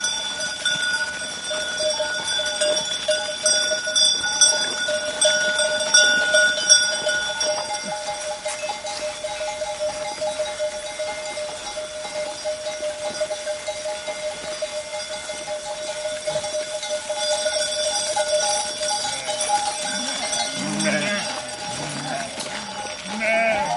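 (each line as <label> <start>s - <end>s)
Sheep bells ringing. 0.0s - 23.8s
A goat bleats. 20.3s - 23.8s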